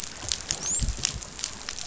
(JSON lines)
{"label": "biophony, dolphin", "recorder": "SoundTrap 500"}